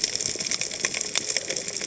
{"label": "biophony, cascading saw", "recorder": "HydroMoth"}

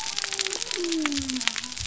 {"label": "biophony", "recorder": "SoundTrap 300"}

